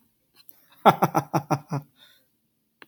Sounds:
Laughter